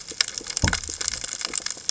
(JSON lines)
{"label": "biophony", "recorder": "HydroMoth"}